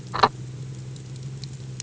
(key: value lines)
label: anthrophony, boat engine
recorder: HydroMoth